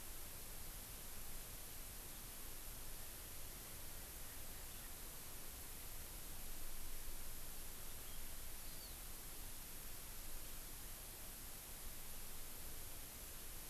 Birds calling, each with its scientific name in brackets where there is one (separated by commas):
Hawaii Amakihi (Chlorodrepanis virens)